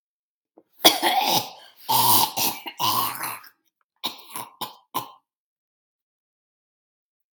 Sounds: Throat clearing